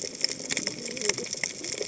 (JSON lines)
{"label": "biophony, cascading saw", "recorder": "HydroMoth"}